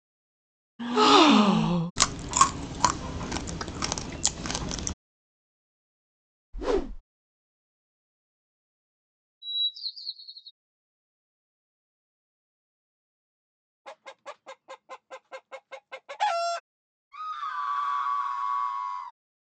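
At 0.79 seconds, someone gasps loudly. Then, at 1.96 seconds, someone chews. After that, at 6.53 seconds, comes the sound of a whoosh. Afterwards, at 9.41 seconds, bird vocalization is audible. Later, at 13.84 seconds, you can hear a chicken. At 17.11 seconds, someone screams.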